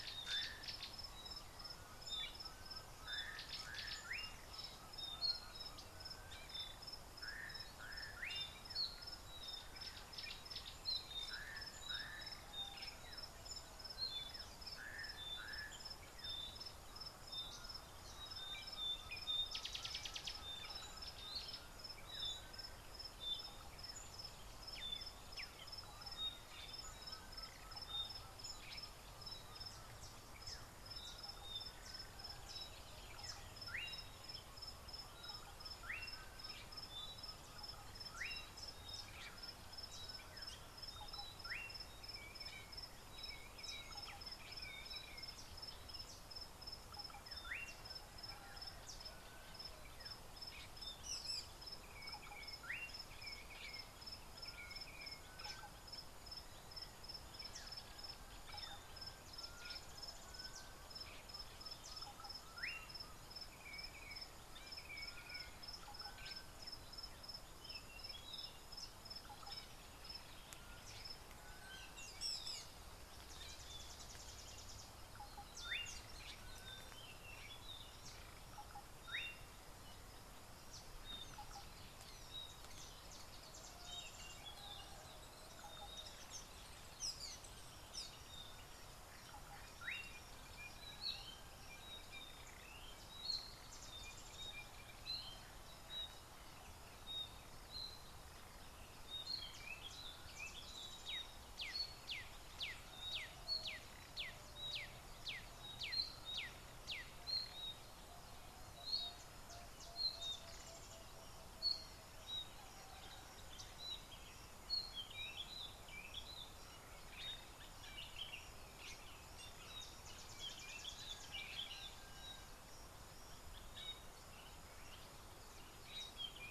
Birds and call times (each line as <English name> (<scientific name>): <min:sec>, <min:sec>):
Slate-colored Boubou (Laniarius funebris): 0:04.1, 0:38.3, 0:47.6, 1:15.8
Variable Sunbird (Cinnyris venustus): 0:19.9, 2:00.6
Black-backed Puffback (Dryoscopus cubla): 0:25.4, 1:44.1
Collared Sunbird (Hedydipna collaris): 0:39.9
Rufous Chatterer (Argya rubiginosa): 0:51.2, 1:12.3, 1:27.1